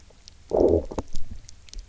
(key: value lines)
label: biophony, low growl
recorder: SoundTrap 300